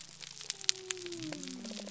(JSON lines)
{"label": "biophony", "recorder": "SoundTrap 300"}